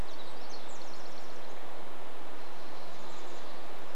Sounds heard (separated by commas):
Pacific Wren song, Chestnut-backed Chickadee call